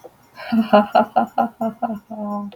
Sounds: Laughter